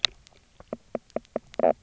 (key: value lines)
label: biophony, knock croak
recorder: SoundTrap 300